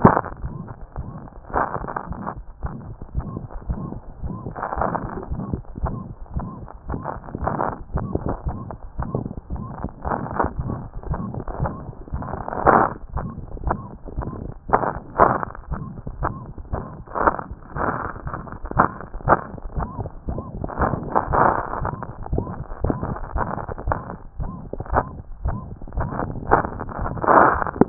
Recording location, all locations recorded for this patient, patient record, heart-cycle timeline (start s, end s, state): mitral valve (MV)
mitral valve (MV)
#Age: Child
#Sex: Male
#Height: 98.0 cm
#Weight: 17.1 kg
#Pregnancy status: False
#Murmur: Present
#Murmur locations: mitral valve (MV)
#Most audible location: mitral valve (MV)
#Systolic murmur timing: Holosystolic
#Systolic murmur shape: Plateau
#Systolic murmur grading: I/VI
#Systolic murmur pitch: Medium
#Systolic murmur quality: Musical
#Diastolic murmur timing: nan
#Diastolic murmur shape: nan
#Diastolic murmur grading: nan
#Diastolic murmur pitch: nan
#Diastolic murmur quality: nan
#Outcome: Abnormal
#Campaign: 2014 screening campaign
0.00	2.10	unannotated
2.10	2.20	S1
2.20	2.34	systole
2.34	2.44	S2
2.44	2.62	diastole
2.62	2.74	S1
2.74	2.86	systole
2.86	2.96	S2
2.96	3.16	diastole
3.16	3.26	S1
3.26	3.34	systole
3.34	3.46	S2
3.46	3.68	diastole
3.68	3.82	S1
3.82	3.92	systole
3.92	4.00	S2
4.00	4.22	diastole
4.22	4.36	S1
4.36	4.46	systole
4.46	4.54	S2
4.54	4.78	diastole
4.78	4.90	S1
4.90	5.02	systole
5.02	5.10	S2
5.10	5.30	diastole
5.30	5.44	S1
5.44	5.52	systole
5.52	5.62	S2
5.62	5.82	diastole
5.82	5.96	S1
5.96	6.06	systole
6.06	6.14	S2
6.14	6.34	diastole
6.34	6.48	S1
6.48	6.58	systole
6.58	6.68	S2
6.68	6.88	diastole
6.88	7.00	S1
7.00	7.12	systole
7.12	7.20	S2
7.20	7.42	diastole
7.42	7.54	S1
7.54	7.64	systole
7.64	7.74	S2
7.74	7.94	diastole
7.94	8.08	S1
8.08	8.26	systole
8.26	8.36	S2
8.36	8.46	diastole
8.46	8.56	S1
8.56	8.68	systole
8.68	8.74	S2
8.74	8.98	diastole
8.98	9.08	S1
9.08	9.16	systole
9.16	9.28	S2
9.28	9.52	diastole
9.52	9.64	S1
9.64	9.80	systole
9.80	9.90	S2
9.90	10.08	diastole
10.08	27.89	unannotated